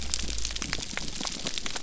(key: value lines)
label: biophony
recorder: SoundTrap 300